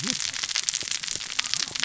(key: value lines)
label: biophony, cascading saw
recorder: SoundTrap 600 or HydroMoth